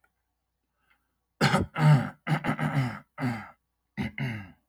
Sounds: Throat clearing